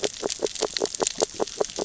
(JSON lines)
{"label": "biophony, grazing", "recorder": "SoundTrap 600 or HydroMoth"}